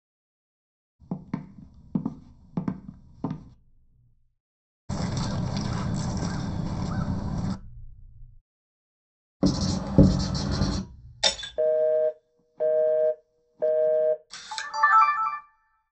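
First someone walks. Then a bird can be heard. After that, the sound of writing comes through. Afterwards, glass shatters. Following that, you can hear a telephone. Finally, a camera is heard.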